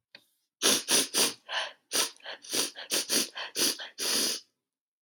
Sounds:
Sniff